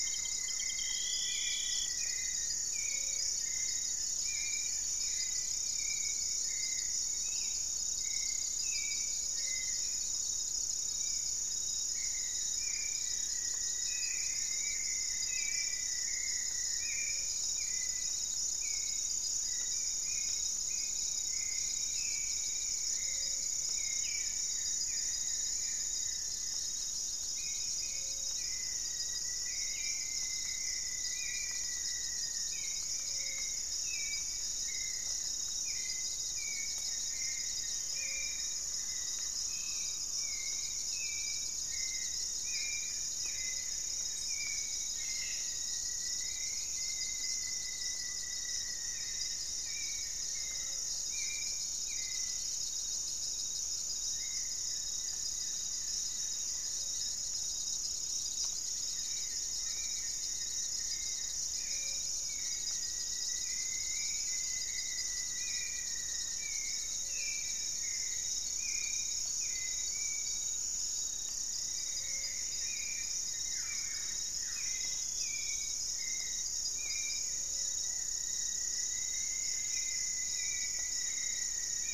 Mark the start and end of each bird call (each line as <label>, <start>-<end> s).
Black-tailed Trogon (Trogon melanurus), 0.0-0.7 s
Rufous-fronted Antthrush (Formicarius rufifrons), 0.0-2.7 s
Gray-fronted Dove (Leptotila rufaxilla), 0.0-3.3 s
Goeldi's Antbird (Akletos goeldii), 0.0-5.5 s
Hauxwell's Thrush (Turdus hauxwelli), 0.0-81.9 s
Gray-fronted Dove (Leptotila rufaxilla), 9.0-9.7 s
Goeldi's Antbird (Akletos goeldii), 11.9-16.2 s
Rufous-fronted Antthrush (Formicarius rufifrons), 12.9-17.2 s
Gray-fronted Dove (Leptotila rufaxilla), 16.8-17.5 s
unidentified bird, 21.2-24.9 s
Gray-fronted Dove (Leptotila rufaxilla), 22.9-43.8 s
Goeldi's Antbird (Akletos goeldii), 24.0-26.8 s
Rufous-fronted Antthrush (Formicarius rufifrons), 28.1-32.6 s
Goeldi's Antbird (Akletos goeldii), 32.6-44.7 s
Thrush-like Wren (Campylorhynchus turdinus), 37.8-40.7 s
Rufous-fronted Antthrush (Formicarius rufifrons), 44.5-49.2 s
Cobalt-winged Parakeet (Brotogeris cyanoptera), 44.7-45.5 s
Goeldi's Antbird (Akletos goeldii), 48.9-80.2 s
Gray-fronted Dove (Leptotila rufaxilla), 50.3-51.0 s
Gray-fronted Dove (Leptotila rufaxilla), 61.6-81.9 s
Rufous-fronted Antthrush (Formicarius rufifrons), 62.2-66.4 s
Plumbeous Antbird (Myrmelastes hyperythrus), 70.9-73.6 s
Buff-throated Woodcreeper (Xiphorhynchus guttatus), 73.4-74.9 s
Rufous-fronted Antthrush (Formicarius rufifrons), 76.9-81.9 s